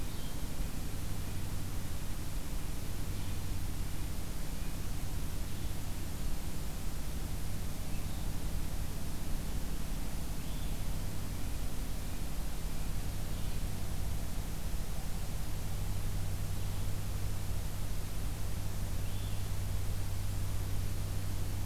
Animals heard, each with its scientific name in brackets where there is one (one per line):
Blue-headed Vireo (Vireo solitarius)